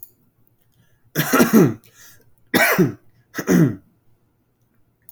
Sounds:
Throat clearing